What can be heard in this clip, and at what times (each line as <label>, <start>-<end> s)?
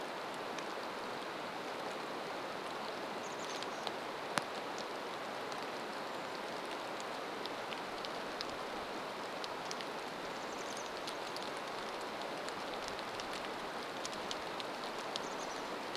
rain, 0-16 s
Chestnut-backed Chickadee call, 2-4 s
Brown Creeper call, 6-8 s
Chestnut-backed Chickadee call, 10-12 s
Brown Creeper call, 14-16 s
Chestnut-backed Chickadee call, 14-16 s